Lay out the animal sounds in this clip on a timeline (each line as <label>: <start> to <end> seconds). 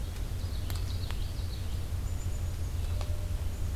Common Yellowthroat (Geothlypis trichas): 0.3 to 1.7 seconds
Red-eyed Vireo (Vireo olivaceus): 1.4 to 3.8 seconds
Black-capped Chickadee (Poecile atricapillus): 1.9 to 2.7 seconds